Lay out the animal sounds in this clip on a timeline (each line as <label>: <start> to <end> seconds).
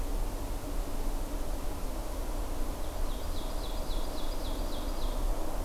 Ovenbird (Seiurus aurocapilla): 2.5 to 5.3 seconds